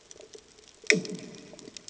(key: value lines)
label: anthrophony, bomb
recorder: HydroMoth